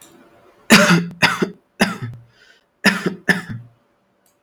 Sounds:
Cough